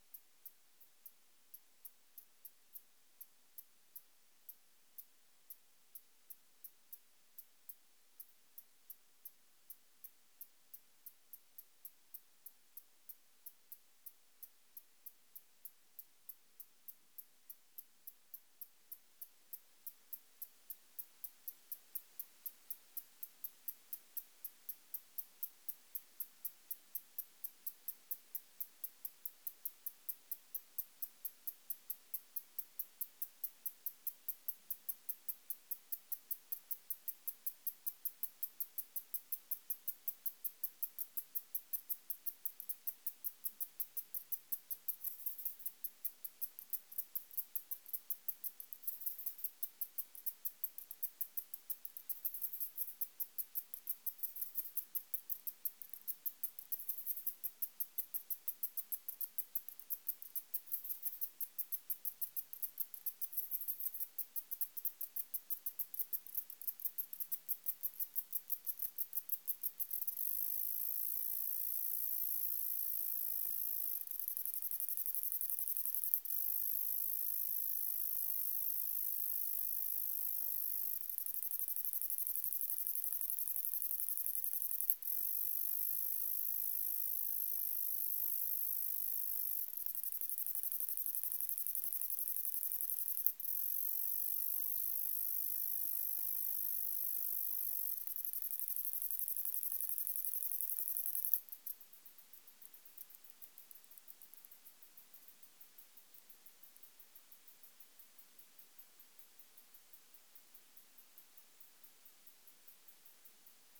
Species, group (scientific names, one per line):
Ducetia japonica
Orthoptera